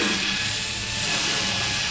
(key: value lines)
label: anthrophony, boat engine
recorder: SoundTrap 500